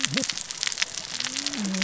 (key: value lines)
label: biophony, cascading saw
recorder: SoundTrap 600 or HydroMoth